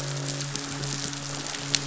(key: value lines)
label: biophony, midshipman
recorder: SoundTrap 500

label: biophony, croak
recorder: SoundTrap 500